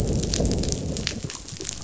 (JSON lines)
{"label": "biophony, growl", "recorder": "SoundTrap 500"}